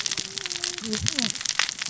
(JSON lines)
{"label": "biophony, cascading saw", "recorder": "SoundTrap 600 or HydroMoth"}